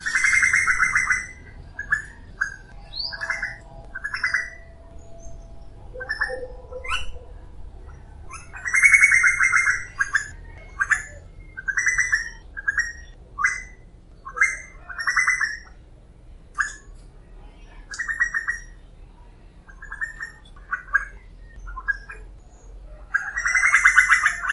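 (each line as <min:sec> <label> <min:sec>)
0:00.0 A loudly chattering bird is accompanied by another bird that chatters briefly when the first bird pauses. 0:06.3
0:06.3 Wolves howl suddenly, and as their howls fade, a bird resumes its song. 0:07.3
0:10.4 Tropical birds chirp intermittently while a street vendor calls out, followed by human conversation. 0:24.5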